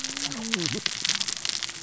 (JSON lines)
{"label": "biophony, cascading saw", "recorder": "SoundTrap 600 or HydroMoth"}